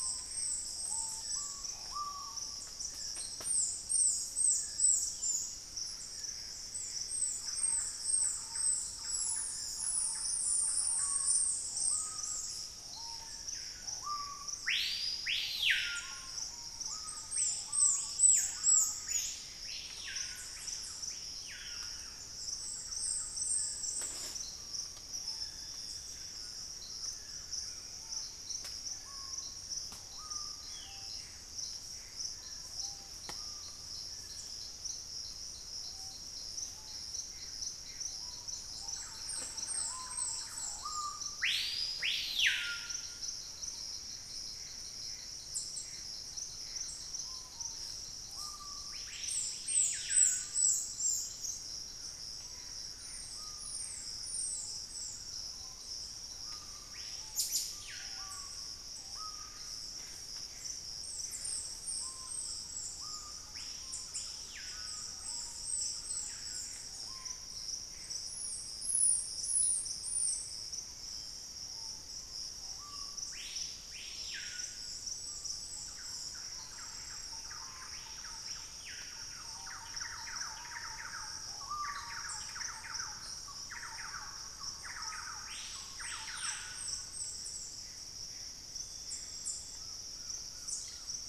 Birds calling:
Screaming Piha (Lipaugus vociferans), Dusky-throated Antshrike (Thamnomanes ardesiacus), Thrush-like Wren (Campylorhynchus turdinus), unidentified bird, Gray Antbird (Cercomacra cinerascens), Collared Trogon (Trogon collaris), Ringed Antpipit (Corythopis torquatus)

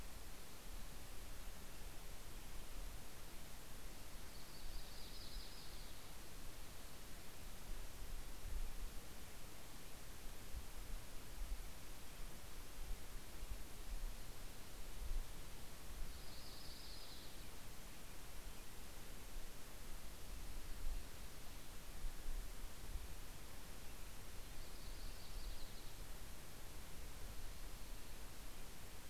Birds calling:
Yellow-rumped Warbler (Setophaga coronata)

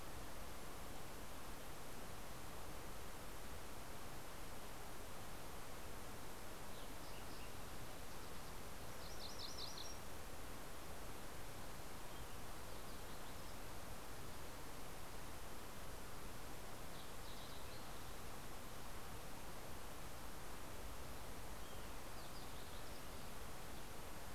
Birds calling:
MacGillivray's Warbler (Geothlypis tolmiei), Green-tailed Towhee (Pipilo chlorurus), Fox Sparrow (Passerella iliaca)

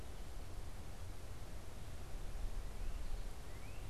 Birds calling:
Northern Cardinal (Cardinalis cardinalis)

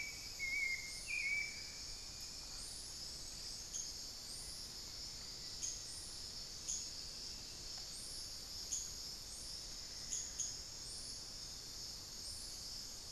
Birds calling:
unidentified bird, Hauxwell's Thrush (Turdus hauxwelli), Black-faced Antthrush (Formicarius analis)

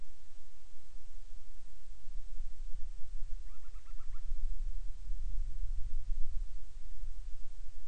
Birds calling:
Band-rumped Storm-Petrel (Hydrobates castro)

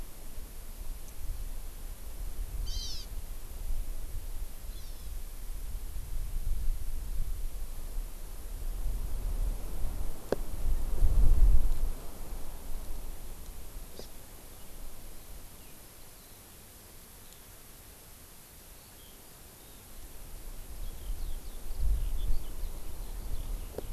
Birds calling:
Hawaii Amakihi (Chlorodrepanis virens), Eurasian Skylark (Alauda arvensis)

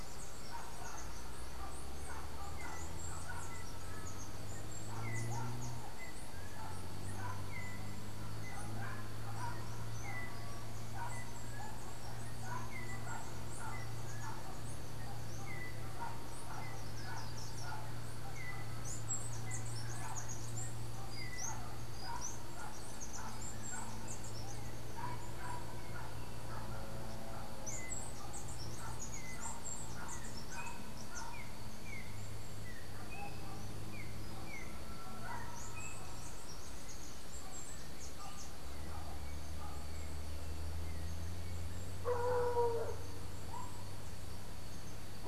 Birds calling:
Chestnut-capped Brushfinch (Arremon brunneinucha), Yellow-backed Oriole (Icterus chrysater), Slate-throated Redstart (Myioborus miniatus)

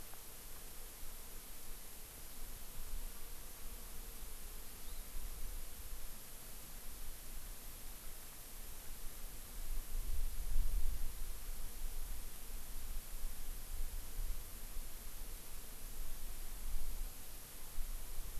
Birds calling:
Hawaii Amakihi (Chlorodrepanis virens)

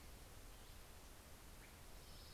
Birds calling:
Orange-crowned Warbler (Leiothlypis celata), Swainson's Thrush (Catharus ustulatus)

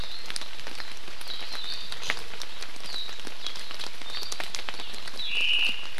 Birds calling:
Omao (Myadestes obscurus)

